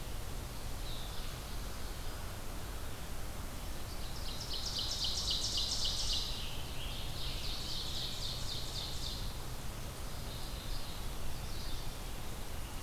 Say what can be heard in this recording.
Red-eyed Vireo, Ovenbird, Mourning Warbler